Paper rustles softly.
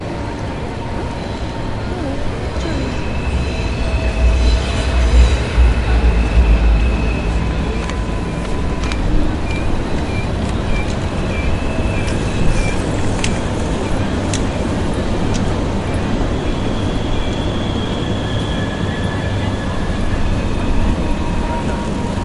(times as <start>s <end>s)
8.8s 11.7s